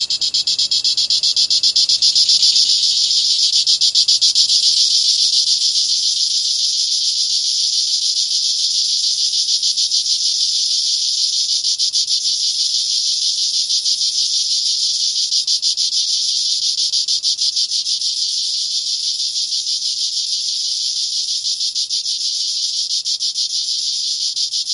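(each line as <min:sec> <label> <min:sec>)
0:00.0 Many insects chirping loudly and evenly in repetition outdoors. 0:24.7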